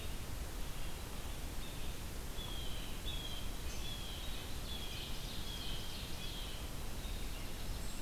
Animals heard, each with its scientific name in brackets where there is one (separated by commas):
Ovenbird (Seiurus aurocapilla), Blue Jay (Cyanocitta cristata), Red-eyed Vireo (Vireo olivaceus), Dark-eyed Junco (Junco hyemalis)